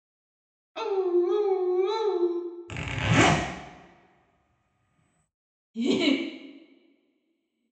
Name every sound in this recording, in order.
dog, zipper, giggle